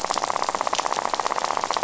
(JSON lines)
{"label": "biophony, rattle", "recorder": "SoundTrap 500"}